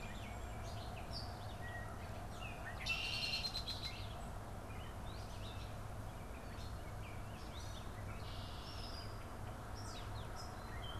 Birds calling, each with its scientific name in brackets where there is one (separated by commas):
Gray Catbird (Dumetella carolinensis), Red-eyed Vireo (Vireo olivaceus), Red-winged Blackbird (Agelaius phoeniceus)